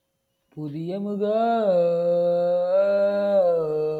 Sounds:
Sigh